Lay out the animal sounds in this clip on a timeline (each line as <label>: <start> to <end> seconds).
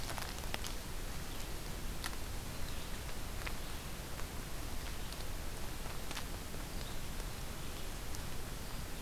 Red-eyed Vireo (Vireo olivaceus): 0.0 to 9.0 seconds